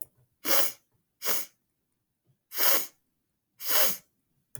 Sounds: Sniff